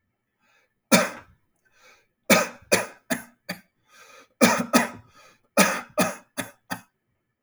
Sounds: Cough